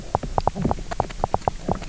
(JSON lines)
{"label": "biophony, knock croak", "recorder": "SoundTrap 300"}